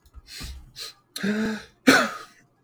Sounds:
Sneeze